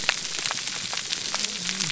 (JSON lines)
{"label": "biophony, whup", "recorder": "SoundTrap 300"}